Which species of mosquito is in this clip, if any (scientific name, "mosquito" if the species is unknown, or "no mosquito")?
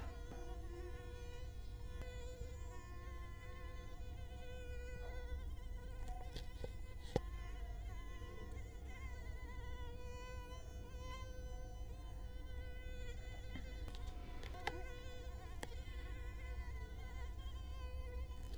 Culex quinquefasciatus